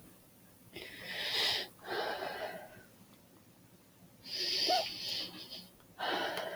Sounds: Sigh